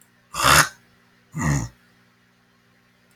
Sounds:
Throat clearing